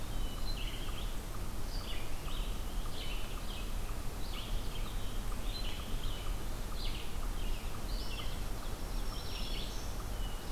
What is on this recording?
Eastern Wood-Pewee, Red-eyed Vireo, Black-throated Green Warbler